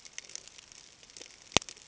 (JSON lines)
{"label": "ambient", "recorder": "HydroMoth"}